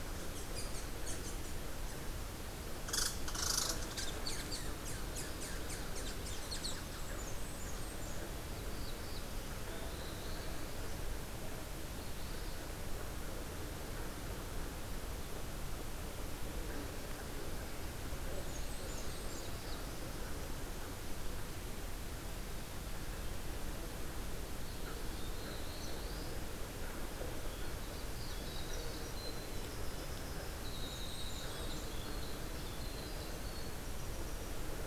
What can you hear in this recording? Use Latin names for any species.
Tamiasciurus hudsonicus, Setophaga fusca, Setophaga caerulescens, Seiurus aurocapilla, Troglodytes hiemalis